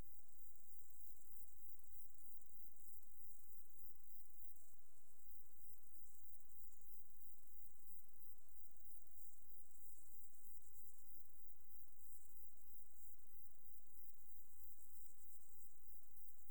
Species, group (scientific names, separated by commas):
Poecilimon jonicus, Orthoptera